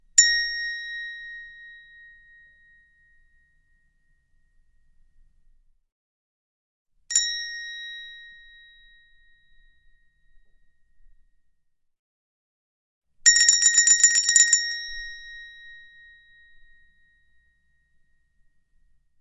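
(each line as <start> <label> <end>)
0.0 A small bell is ringing. 1.8
7.0 A small bell is ringing. 8.5
13.2 A small bell rings repeatedly. 15.6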